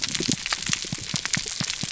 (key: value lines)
label: biophony, pulse
recorder: SoundTrap 300